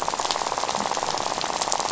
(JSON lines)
{"label": "biophony, rattle", "recorder": "SoundTrap 500"}